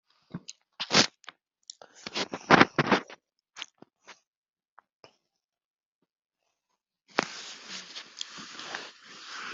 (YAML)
expert_labels:
- quality: no cough present
  cough_type: unknown
  dyspnea: false
  wheezing: false
  stridor: false
  choking: false
  congestion: false
  nothing: true
  diagnosis: healthy cough
  severity: unknown
age: 82
gender: female
respiratory_condition: true
fever_muscle_pain: false
status: symptomatic